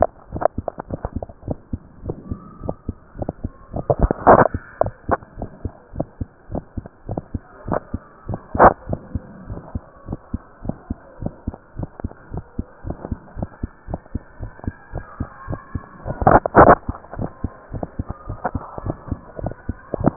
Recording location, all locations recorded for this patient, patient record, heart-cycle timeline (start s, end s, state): mitral valve (MV)
aortic valve (AV)+pulmonary valve (PV)+tricuspid valve (TV)+mitral valve (MV)
#Age: Child
#Sex: Male
#Height: 148.0 cm
#Weight: 35.8 kg
#Pregnancy status: False
#Murmur: Absent
#Murmur locations: nan
#Most audible location: nan
#Systolic murmur timing: nan
#Systolic murmur shape: nan
#Systolic murmur grading: nan
#Systolic murmur pitch: nan
#Systolic murmur quality: nan
#Diastolic murmur timing: nan
#Diastolic murmur shape: nan
#Diastolic murmur grading: nan
#Diastolic murmur pitch: nan
#Diastolic murmur quality: nan
#Outcome: Abnormal
#Campaign: 2015 screening campaign
0.00	8.86	unannotated
8.86	9.00	S1
9.00	9.14	systole
9.14	9.26	S2
9.26	9.44	diastole
9.44	9.58	S1
9.58	9.74	systole
9.74	9.86	S2
9.86	10.06	diastole
10.06	10.18	S1
10.18	10.32	systole
10.32	10.41	S2
10.41	10.62	diastole
10.62	10.76	S1
10.76	10.88	systole
10.88	11.00	S2
11.00	11.20	diastole
11.20	11.34	S1
11.34	11.47	systole
11.47	11.56	S2
11.56	11.76	diastole
11.76	11.90	S1
11.90	12.01	systole
12.01	12.11	S2
12.11	12.32	diastole
12.32	12.42	S1
12.42	12.56	systole
12.56	12.66	S2
12.66	12.84	diastole
12.84	12.96	S1
12.96	13.08	systole
13.08	13.18	S2
13.18	13.36	diastole
13.36	13.50	S1
13.50	13.62	systole
13.62	13.70	S2
13.70	13.88	diastole
13.88	13.98	S1
13.98	14.12	systole
14.12	14.22	S2
14.22	14.40	diastole
14.40	14.50	S1
14.50	14.66	systole
14.66	14.74	S2
14.74	14.94	diastole
14.94	15.04	S1
15.04	15.18	systole
15.18	15.30	S2
15.30	15.48	diastole
15.48	15.60	S1
15.60	15.75	systole
15.75	15.84	S2
15.84	16.04	diastole
16.04	16.18	S1
16.18	20.16	unannotated